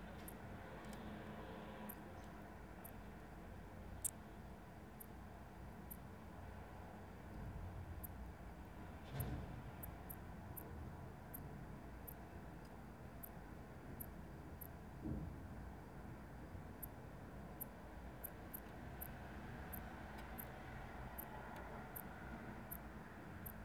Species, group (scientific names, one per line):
Poecilimon antalyaensis
Orthoptera